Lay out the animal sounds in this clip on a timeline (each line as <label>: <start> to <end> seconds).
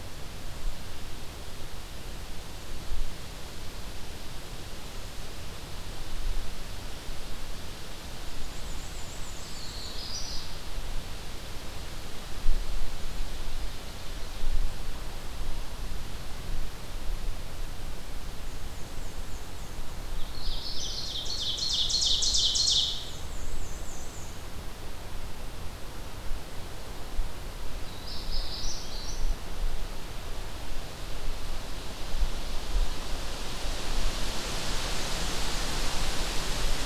Black-and-white Warbler (Mniotilta varia): 8.1 to 10.0 seconds
Magnolia Warbler (Setophaga magnolia): 9.4 to 10.5 seconds
Black-and-white Warbler (Mniotilta varia): 18.2 to 20.1 seconds
Magnolia Warbler (Setophaga magnolia): 20.1 to 21.0 seconds
Ovenbird (Seiurus aurocapilla): 20.3 to 23.1 seconds
Black-and-white Warbler (Mniotilta varia): 22.8 to 24.5 seconds
Magnolia Warbler (Setophaga magnolia): 27.7 to 29.2 seconds